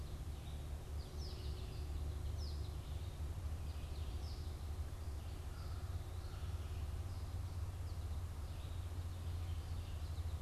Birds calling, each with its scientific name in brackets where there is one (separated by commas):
Red-eyed Vireo (Vireo olivaceus), American Goldfinch (Spinus tristis)